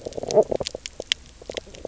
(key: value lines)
label: biophony
recorder: SoundTrap 300